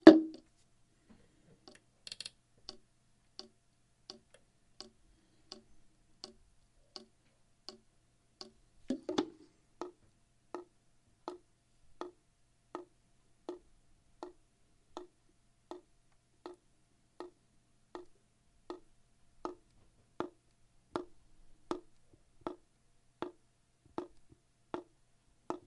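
A faucet is dripping. 0:00.0 - 0:25.7
A heavy water droplet falls from a faucet. 0:00.0 - 0:00.2
A faucet is turning. 0:02.0 - 0:02.4
A heavy water droplet falls from a faucet. 0:08.8 - 0:09.3

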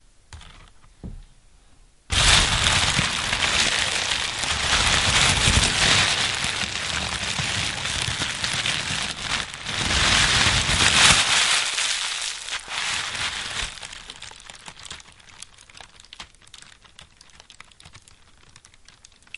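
A crackling fire with popping sounds as the wood burns and the heat intensifies. 0:02.1 - 0:19.4

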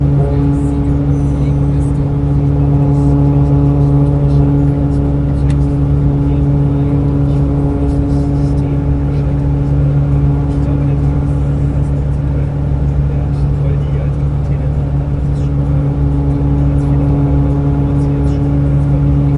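German radio broadcasts speech. 0:00.0 - 0:19.4
Heavy engine makes a loud, steady noise. 0:00.0 - 0:19.4

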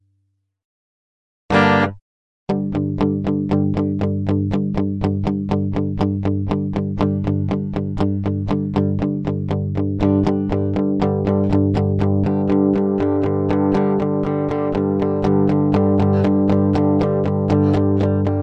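A powerful chord rings out. 0:01.5 - 0:02.0
A guitar plays clean power chords steadily. 0:02.5 - 0:18.4

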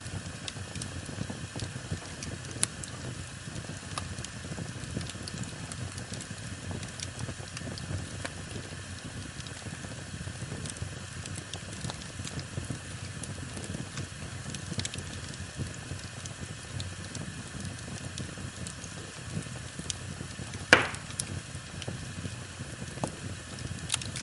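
Fire is burning. 0:00.2 - 0:24.2

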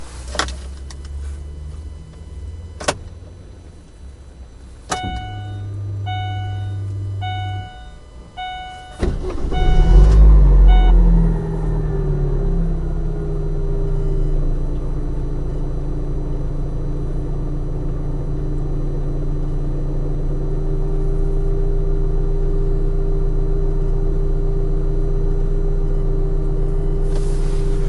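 Quiet background noise. 0:00.0 - 0:04.9
A single knock sounds on a hard surface. 0:00.3 - 0:00.5
A single knock sounds on a hard surface. 0:02.8 - 0:03.0
A repeated beeping sound in a car. 0:04.9 - 0:11.1
A car engine starts. 0:09.6 - 0:11.5
A car engine is humming. 0:11.5 - 0:27.8

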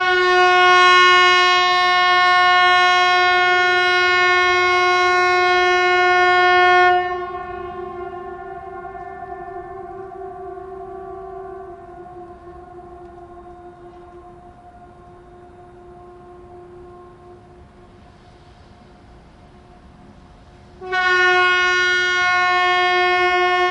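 Clear, bright, and alarming outdoor siren sounds continuously. 0:00.0 - 0:07.0
A large outdoor siren fades in the distance. 0:07.0 - 0:20.9
An outdoor siren sounds clear, bright, and alarming. 0:20.9 - 0:23.7

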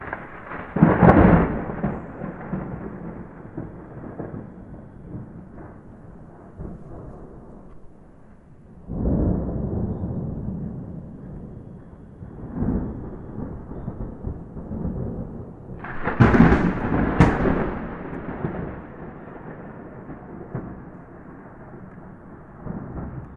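A loud boom resembling thunder is followed by a faint rumble and then another powerful boom in an open field. 0:00.1 - 0:23.4

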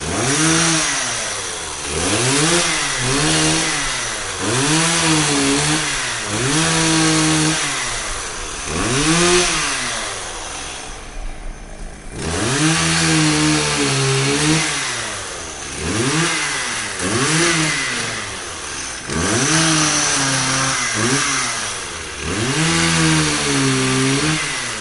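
A chainsaw makes short cutting sounds. 0:00.0 - 0:24.8

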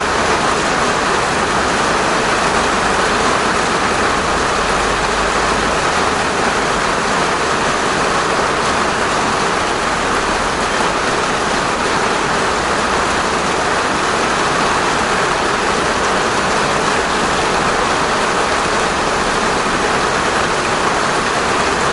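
Heavy rain falling steadily on a plastic roof, creating a loud and continuous noise. 0:00.0 - 0:21.9

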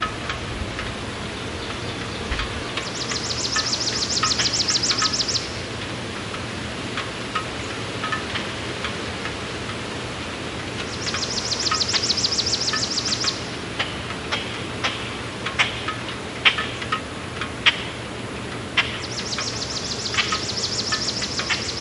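Metallic knocking sounds are heard repeatedly. 0:00.0 - 0:21.8
Birds chirp rapidly and repeatedly in the background. 0:02.4 - 0:06.3
Birds chirp rapidly and repeatedly in the background. 0:10.7 - 0:14.7
Birds chirp rapidly and repeatedly in the background. 0:18.8 - 0:21.8

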